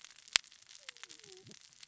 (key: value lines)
label: biophony, cascading saw
recorder: SoundTrap 600 or HydroMoth